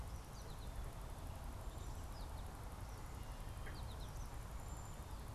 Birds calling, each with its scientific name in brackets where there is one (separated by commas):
unidentified bird, American Goldfinch (Spinus tristis)